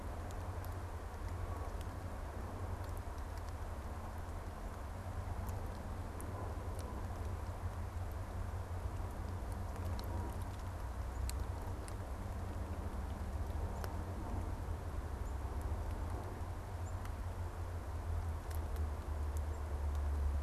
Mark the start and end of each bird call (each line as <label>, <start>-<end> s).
unidentified bird, 13.4-19.8 s